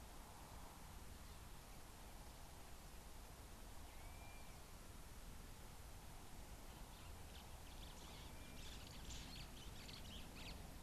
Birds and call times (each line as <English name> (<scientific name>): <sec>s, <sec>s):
Blue-naped Mousebird (Urocolius macrourus): 4.3s
White-browed Sparrow-Weaver (Plocepasser mahali): 9.3s